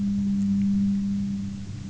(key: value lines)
label: anthrophony, boat engine
recorder: SoundTrap 300